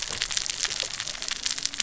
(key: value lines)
label: biophony, cascading saw
recorder: SoundTrap 600 or HydroMoth